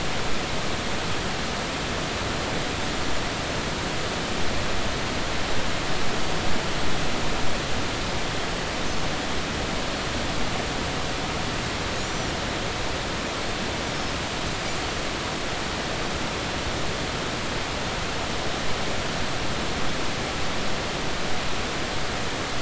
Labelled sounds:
12.0	12.3	Pacific white-sided dolphin, 5.6 to 6.0 kHz

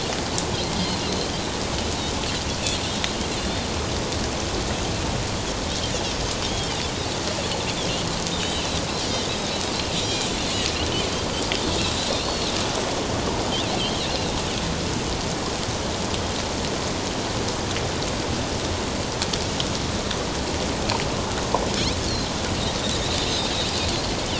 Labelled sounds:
0.6	0.9	Pacific white-sided dolphin, 2.1 to 2.2 kHz
6.5	6.8	Pacific white-sided dolphin, 2.8 to 3.4 kHz
8.3	8.8	Pacific white-sided dolphin, 2.5 to 3.9 kHz
10.0	10.3	Pacific white-sided dolphin, 3.1 to 4.1 kHz
11.8	12.5	Pacific white-sided dolphin, 3.7 to 4.5 kHz
13.8	14.2	Pacific white-sided dolphin, 2.6 to 3.3 kHz
22.1	22.3	Pacific white-sided dolphin, 3.9 to 4.5 kHz

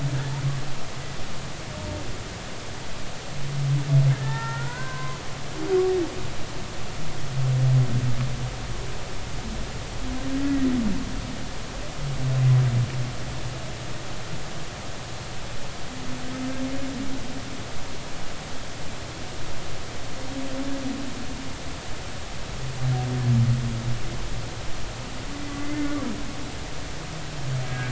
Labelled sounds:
4.1	5.2	humpback whale, 0.83 to 2.0 kHz
10.4	10.7	humpback whale, 1.8 to 2.0 kHz
25.3	25.9	humpback whale, 2.0 to 2.1 kHz
27.7	27.8	humpback whale, 1.5 to 1.7 kHz

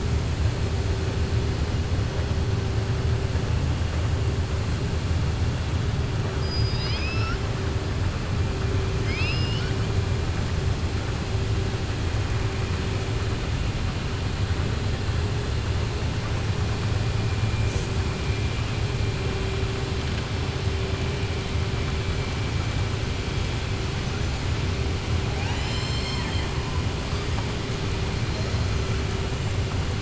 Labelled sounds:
6.3	7.4	killer whale, southern resident, 1.3 to 5.7 kHz
8.9	9.8	killer whale, southern resident, 1.4 to 5.6 kHz

